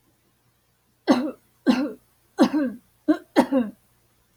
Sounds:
Sneeze